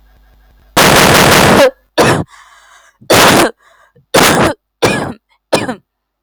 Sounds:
Cough